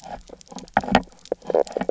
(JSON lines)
{"label": "biophony, knock croak", "recorder": "SoundTrap 300"}